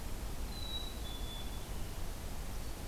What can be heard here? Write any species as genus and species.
Poecile atricapillus